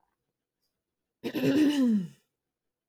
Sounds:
Throat clearing